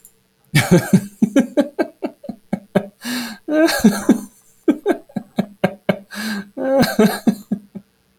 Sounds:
Laughter